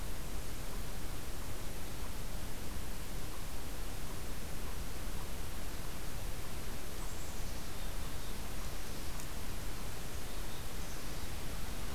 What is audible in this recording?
Eastern Chipmunk, Black-capped Chickadee